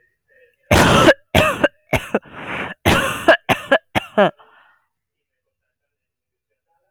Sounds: Cough